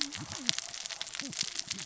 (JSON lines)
{"label": "biophony, cascading saw", "recorder": "SoundTrap 600 or HydroMoth"}